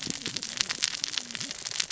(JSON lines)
{"label": "biophony, cascading saw", "recorder": "SoundTrap 600 or HydroMoth"}